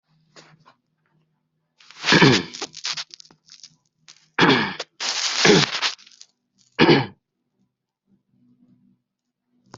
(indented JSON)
{
  "expert_labels": [
    {
      "quality": "no cough present",
      "cough_type": "unknown",
      "dyspnea": false,
      "wheezing": false,
      "stridor": false,
      "choking": false,
      "congestion": false,
      "nothing": true,
      "diagnosis": "healthy cough",
      "severity": "pseudocough/healthy cough"
    }
  ],
  "gender": "female",
  "respiratory_condition": true,
  "fever_muscle_pain": true,
  "status": "COVID-19"
}